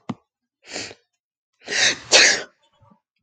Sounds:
Sneeze